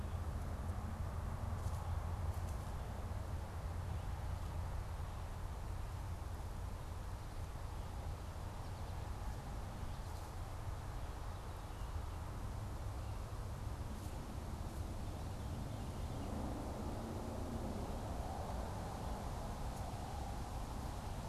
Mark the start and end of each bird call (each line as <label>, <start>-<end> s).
Veery (Catharus fuscescens), 14.6-16.6 s